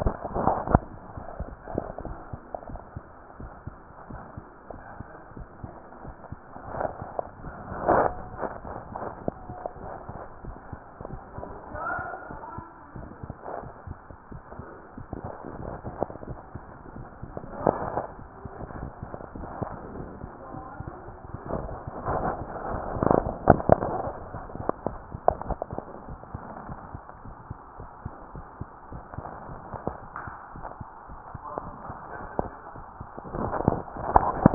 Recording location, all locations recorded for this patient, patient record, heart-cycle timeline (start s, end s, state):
tricuspid valve (TV)
aortic valve (AV)+pulmonary valve (PV)+tricuspid valve (TV)+mitral valve (MV)
#Age: Child
#Sex: Female
#Height: 133.0 cm
#Weight: 28.8 kg
#Pregnancy status: False
#Murmur: Absent
#Murmur locations: nan
#Most audible location: nan
#Systolic murmur timing: nan
#Systolic murmur shape: nan
#Systolic murmur grading: nan
#Systolic murmur pitch: nan
#Systolic murmur quality: nan
#Diastolic murmur timing: nan
#Diastolic murmur shape: nan
#Diastolic murmur grading: nan
#Diastolic murmur pitch: nan
#Diastolic murmur quality: nan
#Outcome: Abnormal
#Campaign: 2015 screening campaign
0.00	2.42	unannotated
2.42	2.68	diastole
2.68	2.82	S1
2.82	2.94	systole
2.94	3.04	S2
3.04	3.38	diastole
3.38	3.52	S1
3.52	3.66	systole
3.66	3.76	S2
3.76	4.08	diastole
4.08	4.22	S1
4.22	4.32	systole
4.32	4.42	S2
4.42	4.74	diastole
4.74	4.82	S1
4.82	4.98	systole
4.98	5.08	S2
5.08	5.38	diastole
5.38	5.46	S1
5.46	5.62	systole
5.62	5.72	S2
5.72	6.04	diastole
6.04	6.14	S1
6.14	6.30	systole
6.30	6.40	S2
6.40	6.72	diastole
6.72	6.86	S1
6.86	7.00	systole
7.00	7.10	S2
7.10	7.40	diastole
7.40	7.50	S1
7.50	7.68	systole
7.68	7.76	S2
7.76	8.62	unannotated
8.62	8.76	S1
8.76	8.90	systole
8.90	9.00	S2
9.00	9.24	diastole
9.24	9.36	S1
9.36	9.48	systole
9.48	9.58	S2
9.58	9.84	diastole
9.84	9.94	S1
9.94	10.06	systole
10.06	10.16	S2
10.16	10.42	diastole
10.42	10.58	S1
10.58	10.70	systole
10.70	10.80	S2
10.80	11.08	diastole
11.08	11.24	S1
11.24	11.36	systole
11.36	11.46	S2
11.46	11.70	diastole
11.70	11.82	S1
11.82	11.96	systole
11.96	12.08	S2
12.08	12.34	diastole
12.34	12.42	S1
12.42	12.56	systole
12.56	12.66	S2
12.66	12.94	diastole
12.94	13.10	S1
13.10	13.22	systole
13.22	13.38	S2
13.38	13.64	diastole
13.64	13.74	S1
13.74	13.87	systole
13.87	14.00	S2
14.00	14.32	diastole
14.32	14.42	S1
14.42	14.54	systole
14.54	14.66	S2
14.66	14.96	diastole
14.96	15.06	S1
15.06	15.22	systole
15.22	15.32	S2
15.32	15.58	diastole
15.58	15.74	S1
15.74	15.85	systole
15.85	15.95	S2
15.95	16.26	diastole
16.26	16.42	S1
16.42	16.53	systole
16.53	16.64	S2
16.64	16.92	diastole
16.92	17.08	S1
17.08	17.20	systole
17.20	17.30	S2
17.30	17.60	diastole
17.60	34.54	unannotated